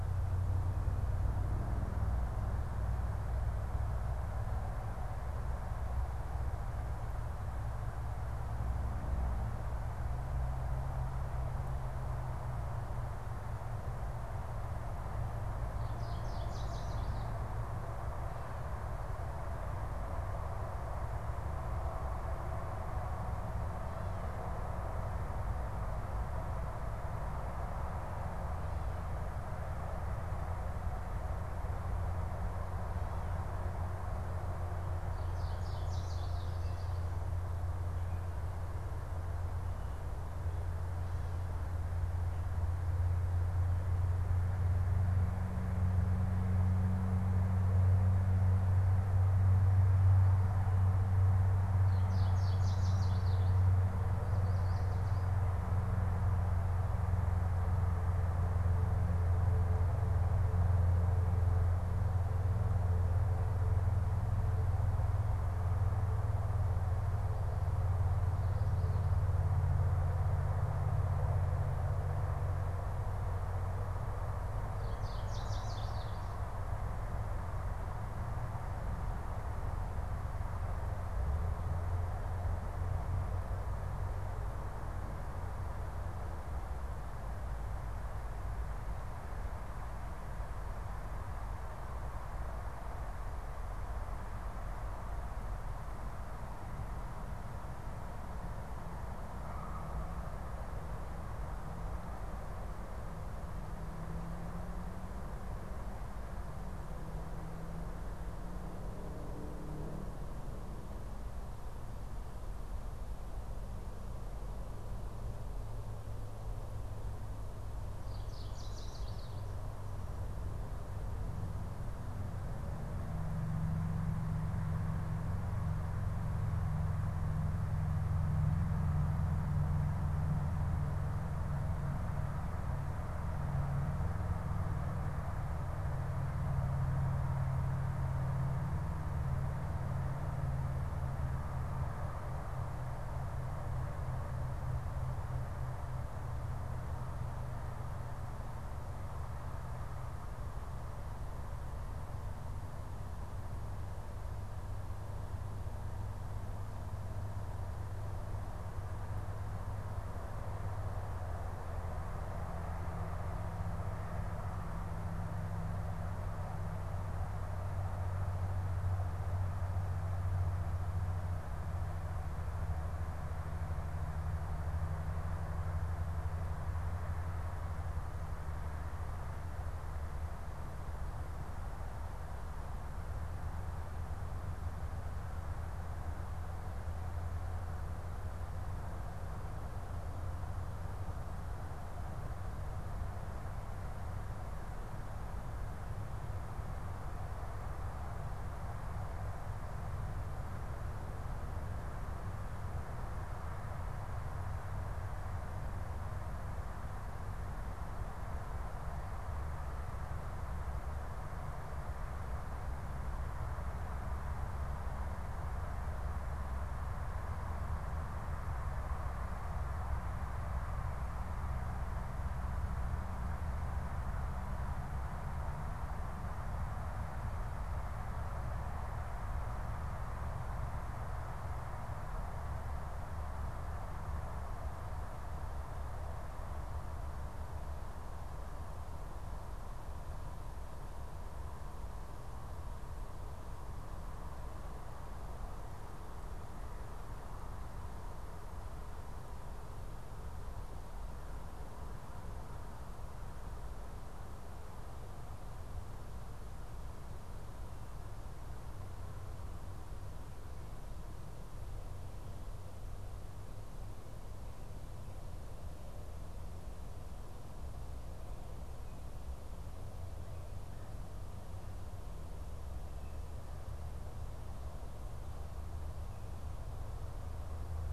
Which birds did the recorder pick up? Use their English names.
Chestnut-sided Warbler, Yellow Warbler